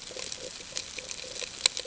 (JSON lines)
{"label": "ambient", "recorder": "HydroMoth"}